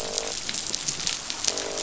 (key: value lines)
label: biophony, croak
recorder: SoundTrap 500